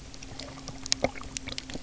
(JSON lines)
{"label": "anthrophony, boat engine", "recorder": "SoundTrap 300"}